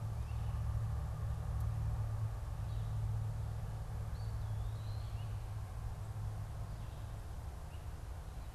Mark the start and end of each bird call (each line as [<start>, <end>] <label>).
[3.94, 5.54] Eastern Wood-Pewee (Contopus virens)